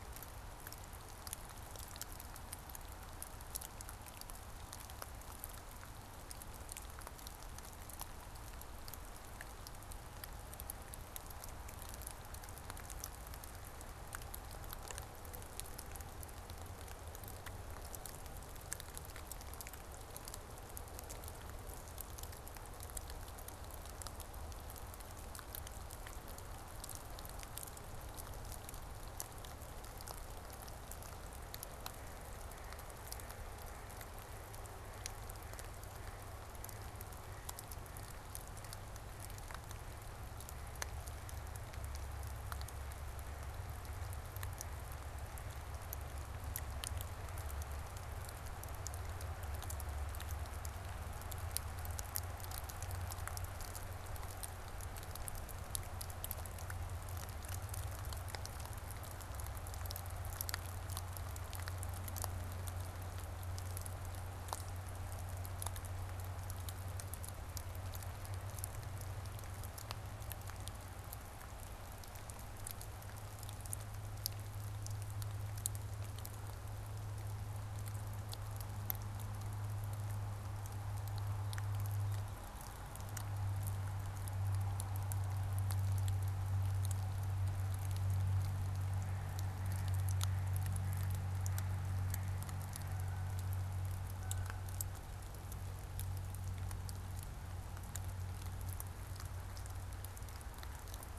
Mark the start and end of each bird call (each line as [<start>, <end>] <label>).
[31.79, 40.99] Mallard (Anas platyrhynchos)
[88.39, 93.69] Mallard (Anas platyrhynchos)
[92.69, 94.89] Canada Goose (Branta canadensis)